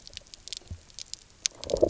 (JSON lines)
{"label": "biophony, low growl", "recorder": "SoundTrap 300"}